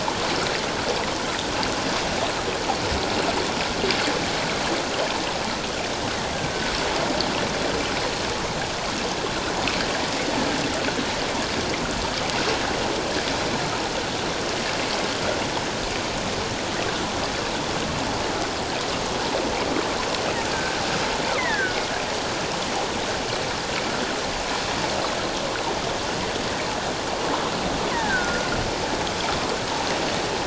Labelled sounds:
6.3	6.7	killer whale, offshore, call OFF17, 1.4 to 1.7 kHz
20.5	21.9	killer whale, offshore, call OFF17, 1.4 to 2.4 kHz
27.9	28.5	killer whale, offshore, call OFF17, 1.4 to 2.1 kHz

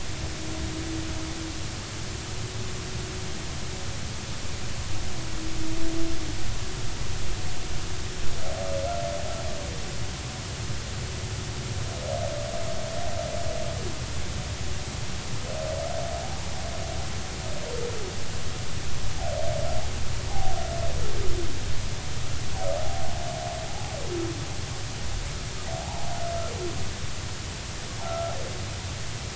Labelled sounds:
20.3	20.6	humpback whale, 0.80 to 0.90 kHz
22.8	23.1	humpback whale, 0.80 to 0.86 kHz
25.8	26.1	humpback whale, 0.80 to 0.99 kHz
28.0	28.3	humpback whale, 1.2 to 1.4 kHz

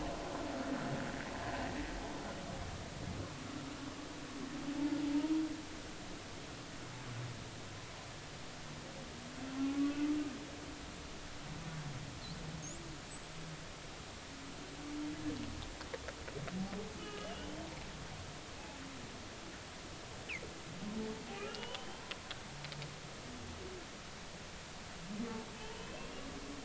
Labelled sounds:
9.5	10.0	humpback whale, 0.80 to 1.2 kHz
13.1	13.3	humpback whale, 7.6 to 8.0 kHz
17.0	17.7	humpback whale, 1.2 to 3.2 kHz
21.4	22.0	humpback whale, 0.86 to 3.2 kHz
25.7	26.1	humpback whale, 2.5 to 3.2 kHz

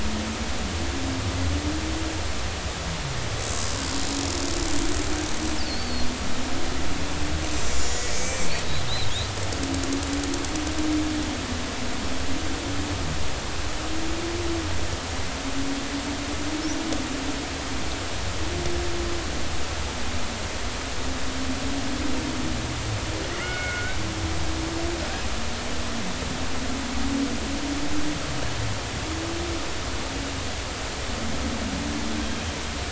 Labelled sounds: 5.6	6.1	killer whale, Bigg's (transient), 4.2 to 5.3 kHz
7.7	8.5	killer whale, Bigg's (transient), 1.9 to 7.1 kHz
8.9	9.1	killer whale, Bigg's (transient), 3.6 to 4.1 kHz
23.3	24.9	killer whale, Bigg's (transient), 1.3 to 5.3 kHz

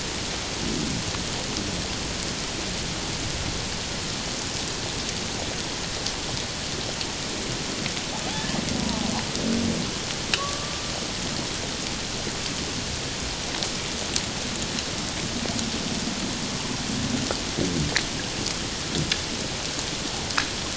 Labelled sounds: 8.8	9.1	humpback whale, 0.78 to 1.0 kHz
10.4	10.8	killer whale, Bigg's (transient), call T11, 1.0 to 1.2 kHz

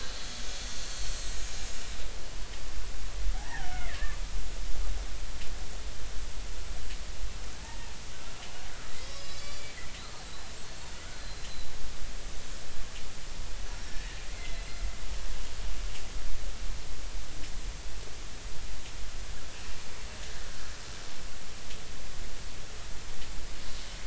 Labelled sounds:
0.8	1.3	killer whale, Bigg's (transient), 4.2 to 4.5 kHz
3.3	4.2	killer whale, Bigg's (transient), 0.80 to 2.2 kHz
7.6	7.9	killer whale, Bigg's (transient), 0.83 to 1.9 kHz
9.0	9.7	killer whale, Bigg's (transient), 3.4 to 7.1 kHz
10.2	11.5	killer whale, Bigg's (transient), 4.0 to 7.6 kHz
13.7	14.8	killer whale, Bigg's (transient), 1.7 to 5.6 kHz

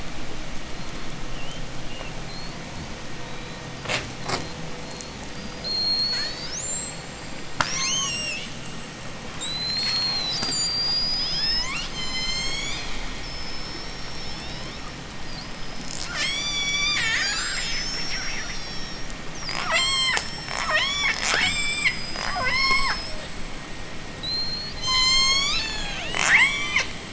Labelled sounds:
0.7	3.7	killer whale, J pod, 2.4 to 4.7 kHz
4.2	8.4	killer whale, J pod, 0.13 to 8.0 kHz
9.2	12.0	killer whale, J pod, 0.56 to 8.0 kHz
12.0	13.2	killer whale, J pod, call S01, 1.8 to 8.0 kHz
13.2	15.3	killer whale, J pod, 2.5 to 5.8 kHz
15.8	23.4	killer whale, J pod, 0.22 to 8.0 kHz
24.1	24.7	killer whale, J pod, 3.0 to 8.0 kHz
24.7	26.2	killer whale, J pod, call S01, 0.40 to 8.0 kHz
26.1	27.0	killer whale, J pod, 0.26 to 8.0 kHz

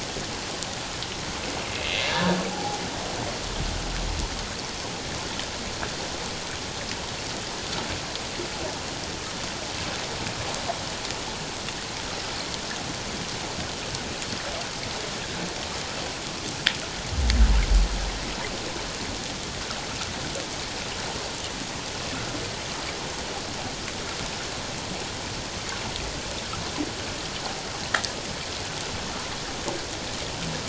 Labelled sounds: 2.0	2.8	humpback whale, 0.78 to 1.8 kHz

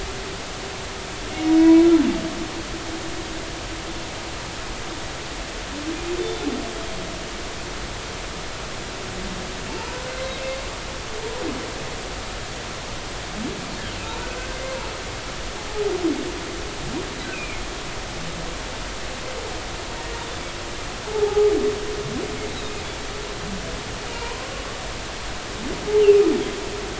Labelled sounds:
1.6	1.9	humpback whale, 2.2 to 2.3 kHz
9.7	10.4	humpback whale, 0.86 to 4.2 kHz
14.6	14.9	humpback whale, 0.83 to 1.1 kHz
17.3	17.6	humpback whale, 2.1 to 2.7 kHz
20.2	20.6	humpback whale, 3.2 to 3.7 kHz
21.1	21.5	humpback whale, 0.80 to 0.93 kHz
24.1	24.5	humpback whale, 0.90 to 1.1 kHz

